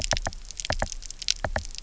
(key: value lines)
label: biophony, knock
recorder: SoundTrap 300